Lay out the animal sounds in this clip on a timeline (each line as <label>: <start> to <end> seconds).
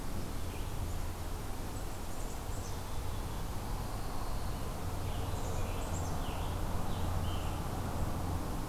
Black-capped Chickadee (Poecile atricapillus): 1.7 to 3.1 seconds
Scarlet Tanager (Piranga olivacea): 4.5 to 7.9 seconds
Black-capped Chickadee (Poecile atricapillus): 5.3 to 6.2 seconds